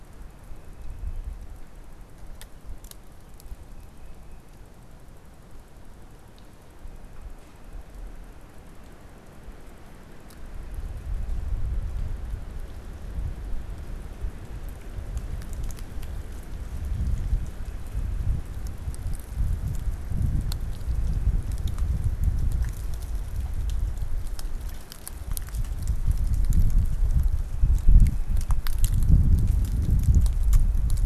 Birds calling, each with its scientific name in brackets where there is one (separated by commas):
Tufted Titmouse (Baeolophus bicolor)